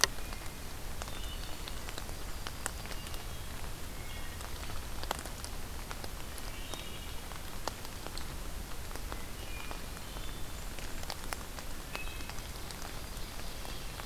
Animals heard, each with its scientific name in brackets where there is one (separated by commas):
Yellow-rumped Warbler (Setophaga coronata), Wood Thrush (Hylocichla mustelina)